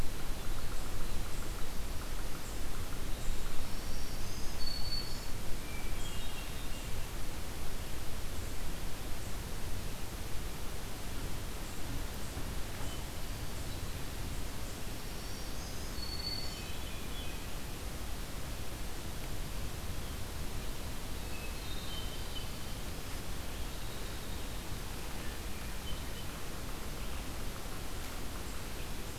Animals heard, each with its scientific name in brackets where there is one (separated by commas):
Winter Wren (Troglodytes hiemalis), Black-throated Green Warbler (Setophaga virens), Yellow-bellied Sapsucker (Sphyrapicus varius), Hermit Thrush (Catharus guttatus)